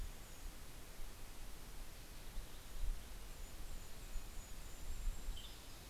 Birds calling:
Red-breasted Nuthatch (Sitta canadensis)
Mountain Chickadee (Poecile gambeli)
Golden-crowned Kinglet (Regulus satrapa)
Western Tanager (Piranga ludoviciana)

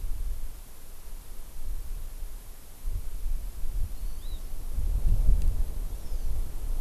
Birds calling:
Hawaii Amakihi (Chlorodrepanis virens)

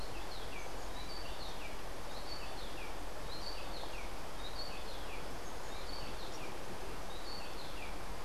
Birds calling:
Rufous-breasted Wren (Pheugopedius rutilus)

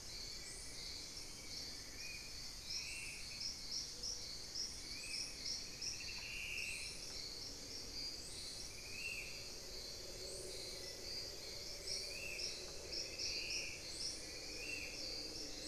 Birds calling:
Spot-winged Antshrike (Pygiptila stellaris)
Black-faced Antthrush (Formicarius analis)

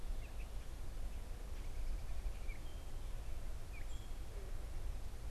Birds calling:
Gray Catbird (Dumetella carolinensis)

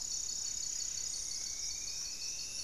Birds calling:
Striped Woodcreeper (Xiphorhynchus obsoletus)
Paradise Tanager (Tangara chilensis)
Amazonian Trogon (Trogon ramonianus)
Buff-breasted Wren (Cantorchilus leucotis)
Gray-fronted Dove (Leptotila rufaxilla)

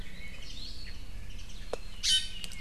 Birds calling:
Iiwi (Drepanis coccinea)
Warbling White-eye (Zosterops japonicus)

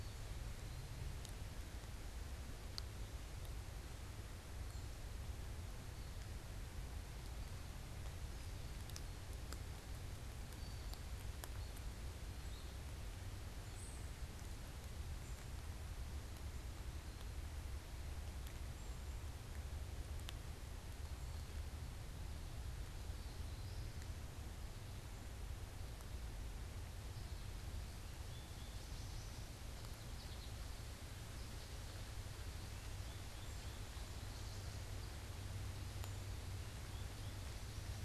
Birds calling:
unidentified bird
American Goldfinch (Spinus tristis)

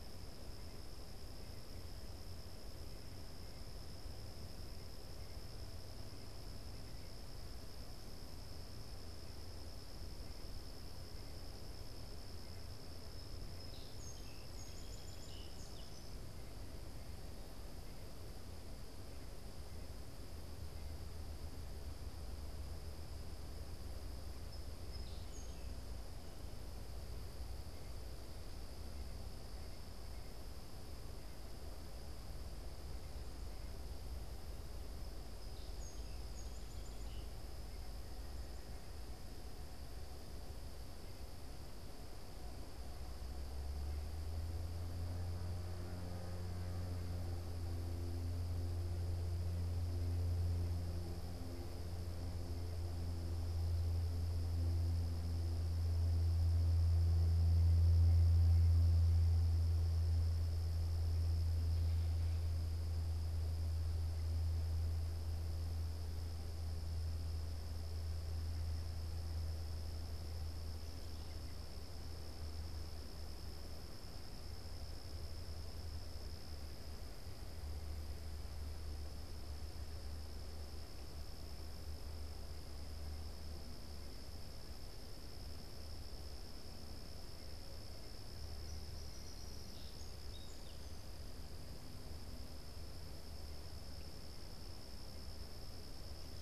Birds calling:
Song Sparrow (Melospiza melodia)

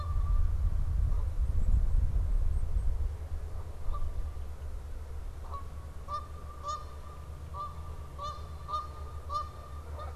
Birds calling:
Black-capped Chickadee (Poecile atricapillus)
Canada Goose (Branta canadensis)

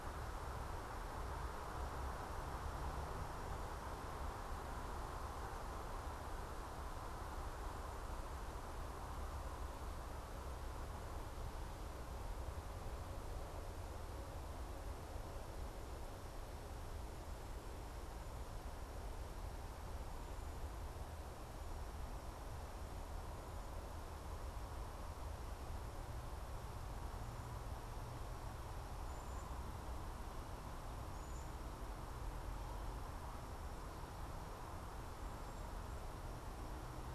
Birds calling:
Cedar Waxwing (Bombycilla cedrorum)

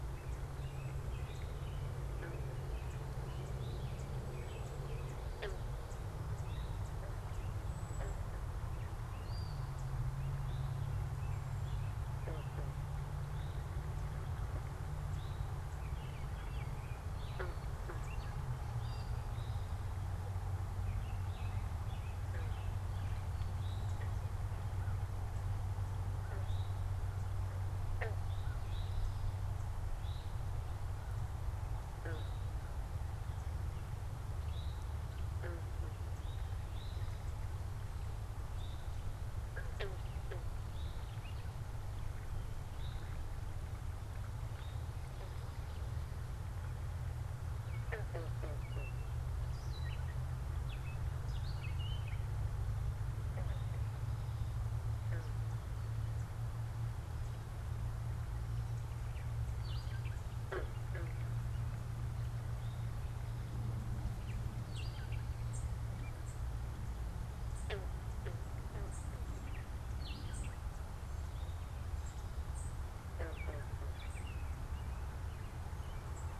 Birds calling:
American Crow (Corvus brachyrhynchos)
Gray Catbird (Dumetella carolinensis)
American Robin (Turdus migratorius)
Cedar Waxwing (Bombycilla cedrorum)
unidentified bird
Eastern Towhee (Pipilo erythrophthalmus)

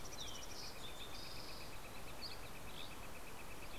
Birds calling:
Dusky Flycatcher (Empidonax oberholseri)
Western Tanager (Piranga ludoviciana)
Mountain Chickadee (Poecile gambeli)
Northern Flicker (Colaptes auratus)

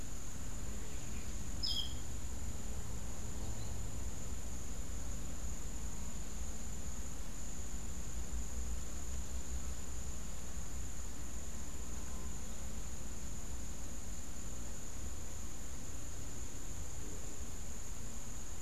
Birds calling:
Clay-colored Thrush (Turdus grayi)

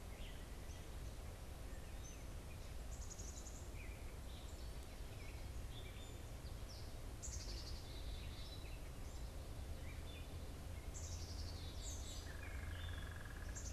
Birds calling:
Gray Catbird (Dumetella carolinensis)
unidentified bird
Black-capped Chickadee (Poecile atricapillus)

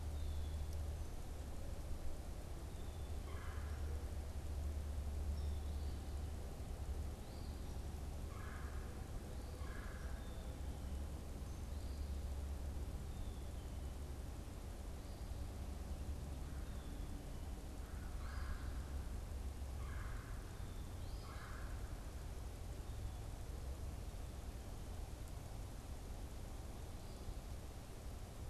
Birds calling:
Black-capped Chickadee (Poecile atricapillus)
Eastern Phoebe (Sayornis phoebe)
Red-bellied Woodpecker (Melanerpes carolinus)

